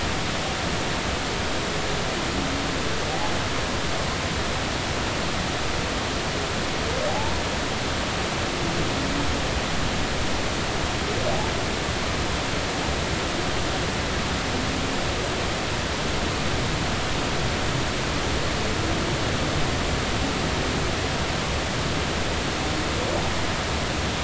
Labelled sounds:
7.1	7.4	humpback whale, 0.80 to 0.99 kHz

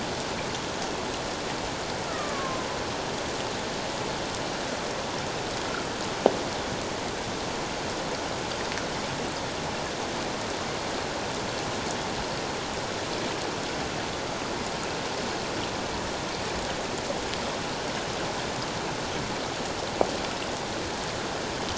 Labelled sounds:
2.1	2.6	killer whale, Bigg's (transient), 0.97 to 1.4 kHz

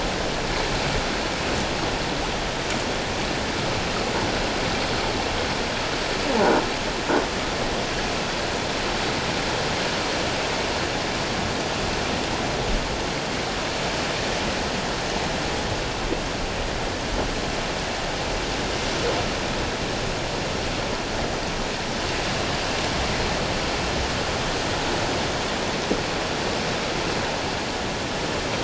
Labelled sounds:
6.4	6.6	croaking sound likely from a nearby submerged object, 0.78 to 1.1 kHz

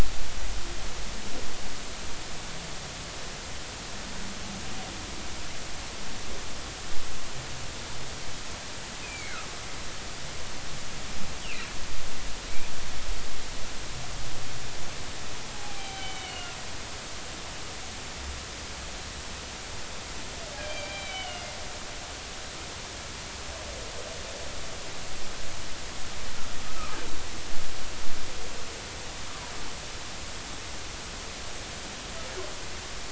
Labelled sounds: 9.0	9.4	humpback whale, 2.0 to 2.6 kHz
15.5	16.6	humpback whale, 0.80 to 3.2 kHz
20.6	21.4	humpback whale, 2.2 to 3.2 kHz
26.6	27.0	humpback whale, 1.2 to 1.3 kHz

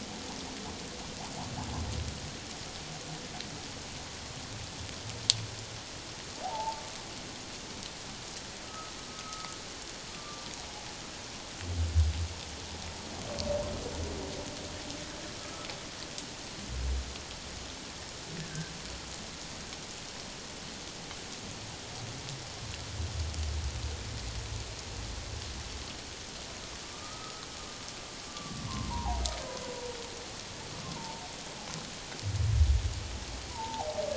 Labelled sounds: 6.4	6.8	humpback whale, 0.78 to 1.0 kHz
8.6	9.5	humpback whale, 1.2 to 1.4 kHz
10.1	10.5	humpback whale, 1.1 to 1.2 kHz
15.4	15.7	humpback whale, 1.1 to 1.3 kHz
18.4	18.7	humpback whale, 1.5 to 1.8 kHz
26.9	27.4	humpback whale, 1.2 to 1.4 kHz
28.3	29.2	humpback whale, 0.78 to 1.2 kHz
30.8	31.2	humpback whale, 0.84 to 1.1 kHz
33.5	34.0	humpback whale, 0.78 to 1.0 kHz

